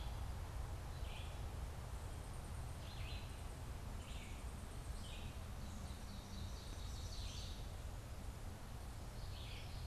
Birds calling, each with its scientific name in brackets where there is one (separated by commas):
Red-eyed Vireo (Vireo olivaceus), Ovenbird (Seiurus aurocapilla)